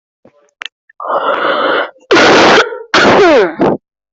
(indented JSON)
{
  "expert_labels": [
    {
      "quality": "poor",
      "cough_type": "unknown",
      "dyspnea": false,
      "wheezing": false,
      "stridor": false,
      "choking": false,
      "congestion": false,
      "nothing": true,
      "diagnosis": "healthy cough",
      "severity": "pseudocough/healthy cough"
    }
  ],
  "gender": "other",
  "respiratory_condition": false,
  "fever_muscle_pain": false,
  "status": "COVID-19"
}